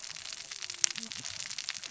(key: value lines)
label: biophony, cascading saw
recorder: SoundTrap 600 or HydroMoth